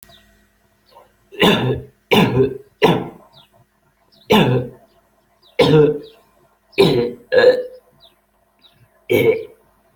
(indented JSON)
{
  "expert_labels": [
    {
      "quality": "poor",
      "cough_type": "unknown",
      "dyspnea": false,
      "wheezing": false,
      "stridor": false,
      "choking": true,
      "congestion": false,
      "nothing": false,
      "diagnosis": "COVID-19",
      "severity": "severe"
    }
  ],
  "age": 30,
  "gender": "male",
  "respiratory_condition": true,
  "fever_muscle_pain": true,
  "status": "symptomatic"
}